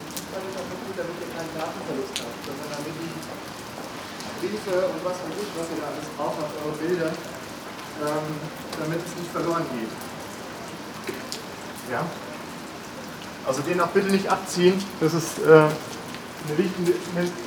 Are people talking?
yes